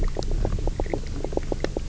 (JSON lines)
{"label": "biophony, knock croak", "recorder": "SoundTrap 300"}